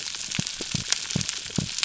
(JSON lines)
{"label": "biophony", "recorder": "SoundTrap 300"}